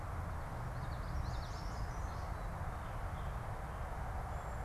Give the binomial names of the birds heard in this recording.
Geothlypis trichas, Setophaga petechia